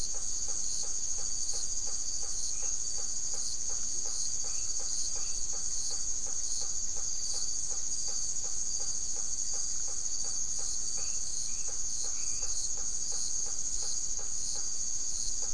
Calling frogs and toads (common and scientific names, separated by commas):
blacksmith tree frog (Boana faber), Dendropsophus elegans, Leptodactylus latrans